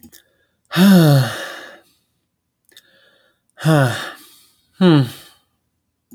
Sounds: Sigh